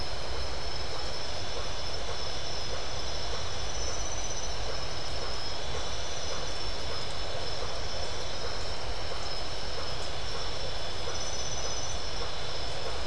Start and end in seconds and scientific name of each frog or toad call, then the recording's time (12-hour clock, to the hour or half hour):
none
9pm